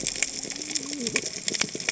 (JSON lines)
{"label": "biophony, cascading saw", "recorder": "HydroMoth"}